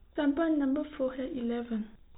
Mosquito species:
no mosquito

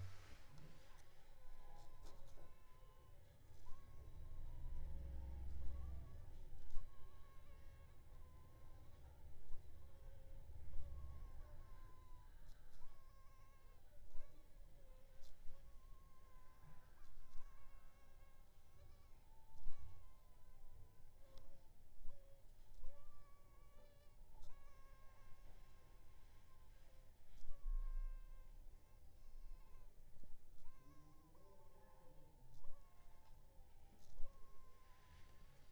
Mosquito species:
Anopheles funestus s.s.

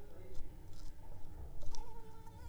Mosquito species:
Anopheles arabiensis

